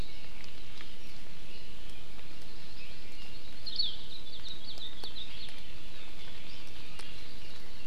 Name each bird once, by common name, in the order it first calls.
Hawaii Akepa